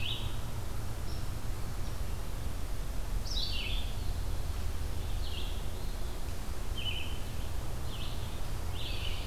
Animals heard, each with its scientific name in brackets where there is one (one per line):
Scarlet Tanager (Piranga olivacea)
Red-eyed Vireo (Vireo olivaceus)